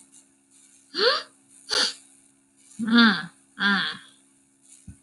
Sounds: Sigh